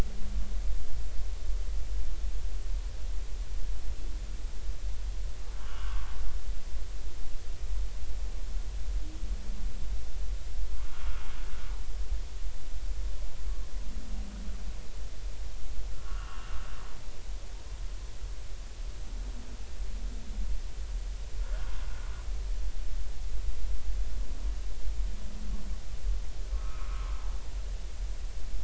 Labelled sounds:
5.6	6.1	humpback whale, 0.93 to 3.0 kHz
16.0	16.6	humpback whale, 1.1 to 2.9 kHz
21.4	21.7	humpback whale, 1.3 to 1.8 kHz
26.5	27.1	humpback whale, 0.99 to 1.5 kHz

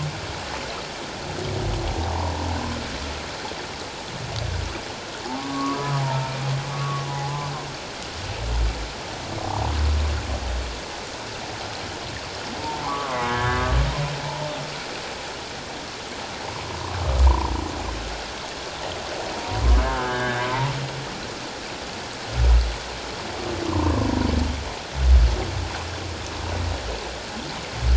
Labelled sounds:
5.4	6.3	humpback whale, 0.81 to 1.3 kHz
6.7	7.1	humpback whale, 1.1 to 1.2 kHz
9.4	9.7	humpback whale, 0.78 to 1.0 kHz
12.8	13.7	humpback whale, 0.94 to 2.1 kHz
14.2	14.5	humpback whale, 0.84 to 1.0 kHz
17.3	17.5	humpback whale, 0.84 to 1.1 kHz
19.8	20.7	humpback whale, 0.88 to 3.1 kHz
23.7	24.1	humpback whale, 0.88 to 1.2 kHz

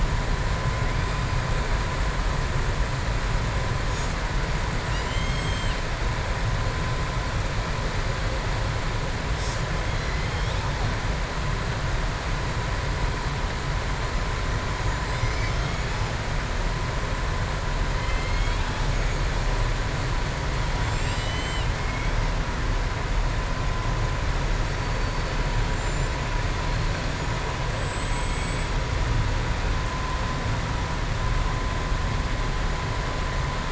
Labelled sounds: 18.0	18.7	killer whale, southern resident, 2.1 to 4.3 kHz
25.7	26.1	killer whale, southern resident, 6.4 to 8.0 kHz
27.7	28.7	killer whale, southern resident, 6.8 to 8.0 kHz

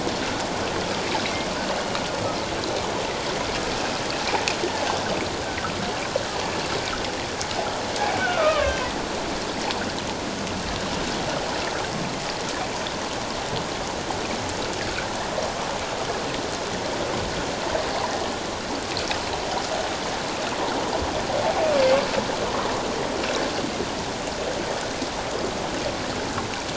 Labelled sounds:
5.4	5.7	humpback whale, 1.2 to 1.6 kHz
8.2	8.7	humpback whale, 1.0 to 1.6 kHz

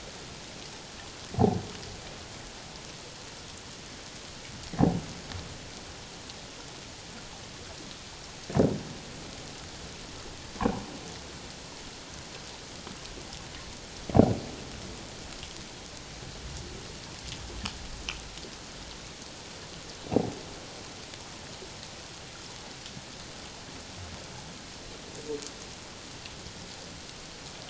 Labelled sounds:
10.6	10.8	humpback whale, 0.78 to 1.2 kHz

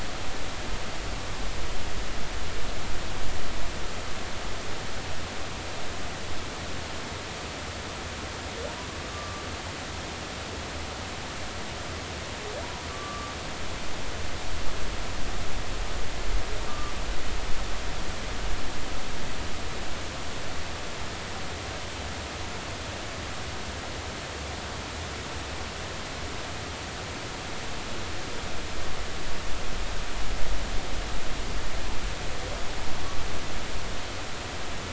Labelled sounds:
9.1	9.4	humpback whale, 1.1 to 1.2 kHz
12.9	13.3	humpback whale, 1.1 to 1.2 kHz
16.7	16.9	humpback whale, 1.1 to 1.3 kHz

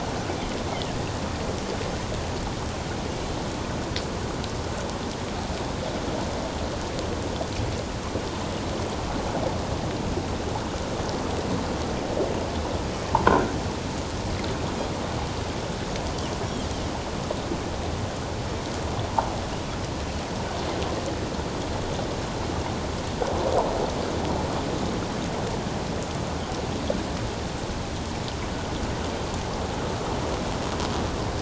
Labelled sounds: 13.1	13.4	croaking sound likely from a nearby submerged object, 0.81 to 1.1 kHz

